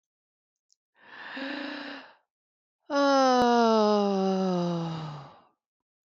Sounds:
Sigh